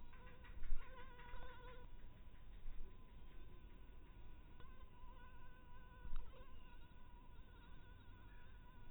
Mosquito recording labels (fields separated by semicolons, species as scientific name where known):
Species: mosquito; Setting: cup